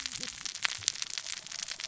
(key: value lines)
label: biophony, cascading saw
recorder: SoundTrap 600 or HydroMoth